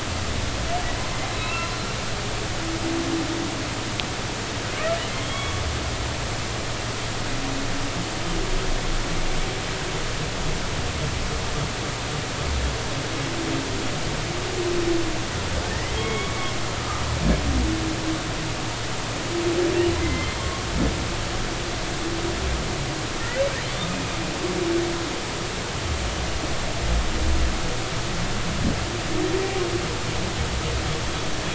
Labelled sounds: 1.3	1.7	humpback whale, 2.5 to 4.0 kHz
5.2	5.6	humpback whale, 1.1 to 3.4 kHz
15.9	16.5	humpback whale, 2.1 to 3.4 kHz
20.0	20.4	humpback whale, 2.0 to 2.1 kHz
21.4	21.7	humpback whale, 1.0 to 1.1 kHz
23.2	23.4	humpback whale, 1.3 to 1.6 kHz

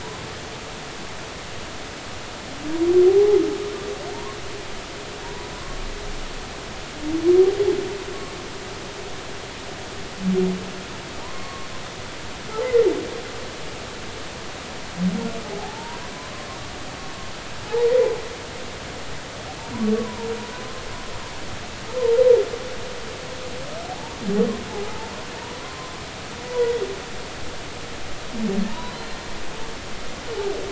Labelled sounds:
3.1	3.4	humpback whale, 0.80 to 0.86 kHz
5.2	5.5	humpback whale, 0.90 to 1.0 kHz
11.2	11.7	humpback whale, 0.86 to 1.2 kHz
12.6	12.9	humpback whale, 1.8 to 2.1 kHz
15.6	16.0	humpback whale, 0.80 to 1.1 kHz
17.7	17.9	humpback whale, 0.80 to 1.0 kHz
19.9	20.3	humpback whale, 0.86 to 1.2 kHz
23.9	24.2	humpback whale, 0.80 to 0.99 kHz
26.5	26.9	humpback whale, 0.93 to 1.1 kHz
28.7	29.2	humpback whale, 0.86 to 4.2 kHz

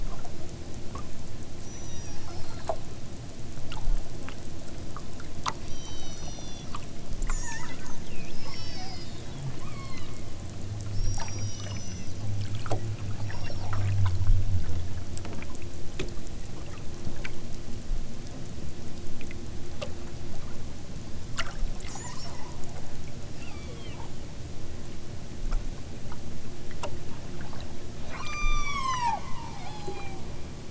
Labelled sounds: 1.6	2.3	killer whale, southern Alaska resident, 0.78 to 8.0 kHz
5.6	6.8	killer whale, southern Alaska resident, 2.2 to 6.1 kHz
7.2	8.0	killer whale, southern Alaska resident, 0.74 to 8.0 kHz
8.4	10.3	killer whale, southern Alaska resident, 0.78 to 6.4 kHz
10.9	12.3	killer whale, southern Alaska resident, 1.8 to 6.5 kHz
13.2	13.8	killer whale, southern Alaska resident, 2.4 to 6.1 kHz
21.8	22.8	killer whale, southern Alaska resident, 0.60 to 7.7 kHz
23.3	24.1	killer whale, southern Alaska resident, 0.78 to 6.0 kHz
28.1	30.4	killer whale, southern Alaska resident, 0.46 to 8.0 kHz

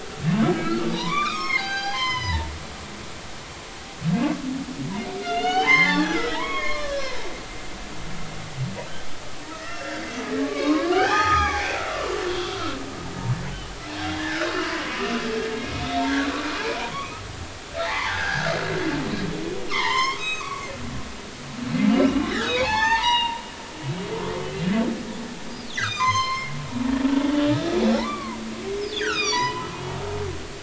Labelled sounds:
0.5	2.5	humpback whale, 0.80 to 6.7 kHz
5.2	7.2	humpback whale, 0.80 to 5.5 kHz
9.6	10.0	humpback whale, 1.8 to 2.8 kHz
10.4	12.8	humpback whale, 0.80 to 6.0 kHz
13.5	14.5	humpback whale, 1.3 to 5.3 kHz
15.5	15.8	humpback whale, 2.1 to 2.2 kHz
16.4	17.2	humpback whale, 0.80 to 2.5 kHz
17.8	18.5	humpback whale, 0.80 to 2.4 kHz
19.7	20.7	humpback whale, 0.83 to 7.5 kHz
21.9	23.4	humpback whale, 0.80 to 6.5 kHz
25.7	26.5	humpback whale, 0.96 to 6.7 kHz
27.9	28.4	humpback whale, 0.80 to 2.4 kHz
28.9	29.7	humpback whale, 0.86 to 6.6 kHz

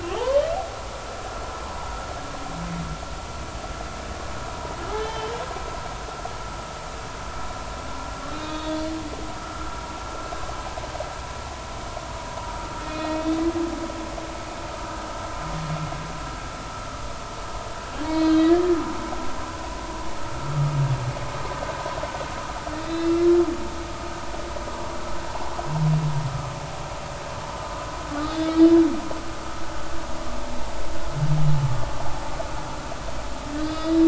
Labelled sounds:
0.0	0.5	humpback whale, 0.83 to 3.2 kHz
4.9	5.3	humpback whale, 1.7 to 4.0 kHz
8.3	8.9	humpback whale, 2.4 to 3.8 kHz
12.8	13.2	humpback whale, 2.4 to 2.6 kHz
18.0	18.8	humpback whale, 1.6 to 4.2 kHz
22.8	23.5	humpback whale, 1.3 to 3.7 kHz
28.2	28.8	humpback whale, 3.4 to 5.1 kHz
33.6	34.0	humpback whale, 3.4 to 5.2 kHz

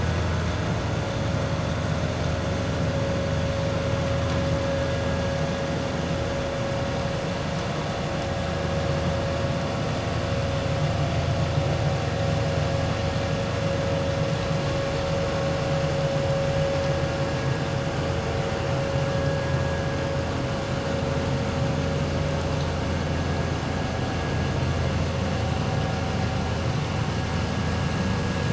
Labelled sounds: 19.1	19.4	vessel noise, 1.6 to 1.8 kHz

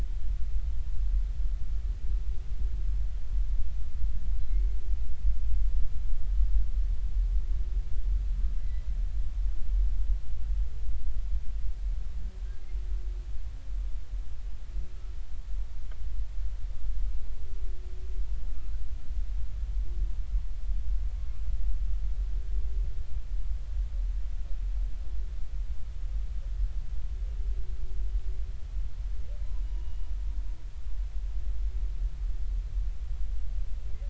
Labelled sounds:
4.5	4.8	humpback whale, 2.0 to 2.2 kHz
8.6	8.9	humpback whale, 1.9 to 2.1 kHz
29.6	30.1	humpback whale, 0.93 to 2.9 kHz

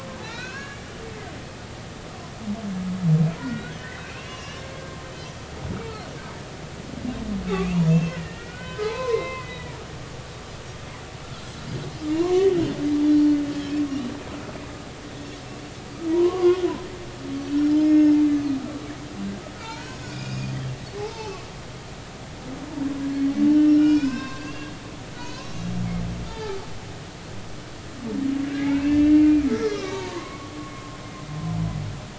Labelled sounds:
3.4	5.0	humpback whale, 1.4 to 5.8 kHz
7.6	9.7	humpback whale, 0.83 to 4.2 kHz
12.1	12.5	humpback whale, 0.90 to 1.2 kHz
13.1	13.4	humpback whale, 3.9 to 4.4 kHz
16.1	16.7	humpback whale, 0.90 to 3.4 kHz
17.7	18.2	humpback whale, 4.9 to 6.7 kHz
19.6	20.6	humpback whale, 0.83 to 6.5 kHz
21.0	21.4	humpback whale, 0.80 to 2.7 kHz
23.7	24.7	humpback whale, 0.99 to 5.5 kHz
25.1	25.7	humpback whale, 0.93 to 6.2 kHz
26.3	26.6	humpback whale, 0.80 to 1.8 kHz
28.6	31.0	humpback whale, 0.90 to 5.2 kHz

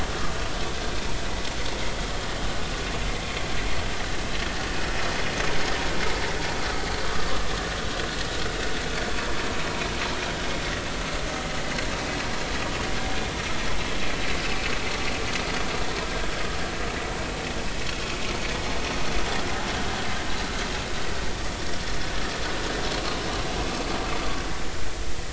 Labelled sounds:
7.1	7.4	vessel noise, 1.1 to 1.3 kHz

